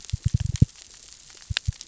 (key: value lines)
label: biophony, knock
recorder: SoundTrap 600 or HydroMoth